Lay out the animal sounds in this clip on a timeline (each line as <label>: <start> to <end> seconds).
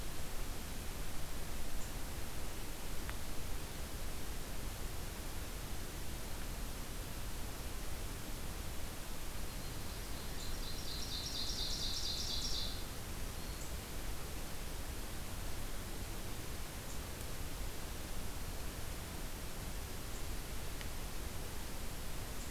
Yellow-rumped Warbler (Setophaga coronata): 9.2 to 10.3 seconds
Ovenbird (Seiurus aurocapilla): 10.3 to 12.8 seconds